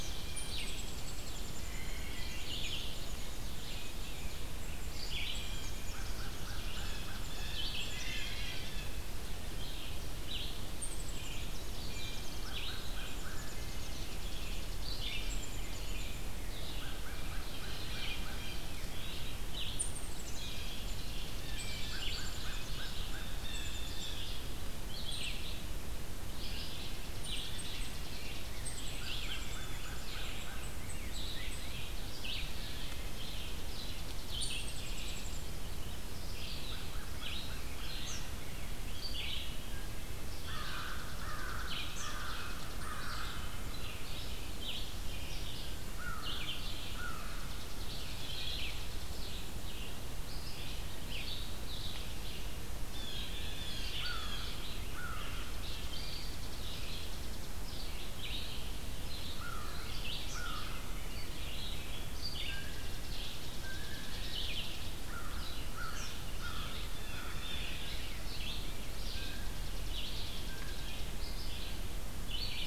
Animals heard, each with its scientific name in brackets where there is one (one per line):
Chipping Sparrow (Spizella passerina)
Ovenbird (Seiurus aurocapilla)
Rose-breasted Grosbeak (Pheucticus ludovicianus)
Red-eyed Vireo (Vireo olivaceus)
Eastern Kingbird (Tyrannus tyrannus)
unidentified call
Blue Jay (Cyanocitta cristata)
American Crow (Corvus brachyrhynchos)